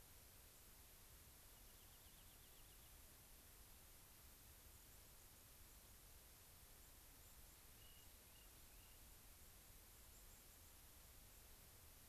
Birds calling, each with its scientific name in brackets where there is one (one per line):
White-crowned Sparrow (Zonotrichia leucophrys)
Rock Wren (Salpinctes obsoletus)